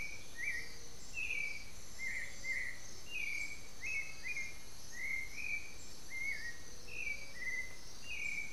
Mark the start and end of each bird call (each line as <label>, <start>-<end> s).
Black-billed Thrush (Turdus ignobilis), 0.0-8.5 s
unidentified bird, 0.3-3.4 s